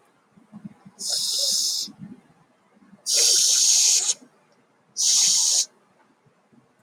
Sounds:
Sniff